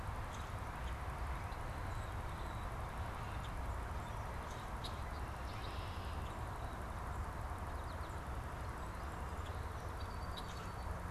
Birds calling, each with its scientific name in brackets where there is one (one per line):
Song Sparrow (Melospiza melodia)
Common Grackle (Quiscalus quiscula)
Red-winged Blackbird (Agelaius phoeniceus)
American Goldfinch (Spinus tristis)